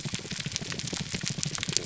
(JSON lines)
{"label": "biophony, pulse", "recorder": "SoundTrap 300"}